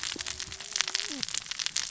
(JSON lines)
{"label": "biophony, cascading saw", "recorder": "SoundTrap 600 or HydroMoth"}